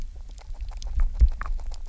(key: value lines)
label: biophony, grazing
recorder: SoundTrap 300